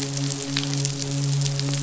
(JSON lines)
{"label": "biophony, midshipman", "recorder": "SoundTrap 500"}